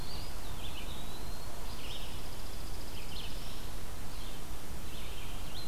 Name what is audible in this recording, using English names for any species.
Eastern Wood-Pewee, Red-eyed Vireo, Chipping Sparrow